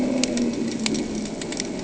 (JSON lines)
{"label": "anthrophony, boat engine", "recorder": "HydroMoth"}